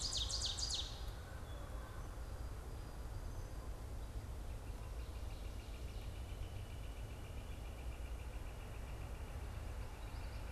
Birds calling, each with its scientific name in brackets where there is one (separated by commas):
Northern Flicker (Colaptes auratus), Ovenbird (Seiurus aurocapilla)